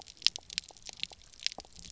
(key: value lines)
label: biophony, pulse
recorder: SoundTrap 300